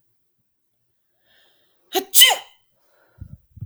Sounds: Sneeze